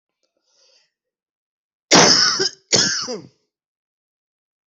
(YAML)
expert_labels:
- quality: good
  cough_type: wet
  dyspnea: false
  wheezing: false
  stridor: false
  choking: false
  congestion: false
  nothing: true
  diagnosis: lower respiratory tract infection
  severity: mild
age: 42
gender: male
respiratory_condition: true
fever_muscle_pain: false
status: symptomatic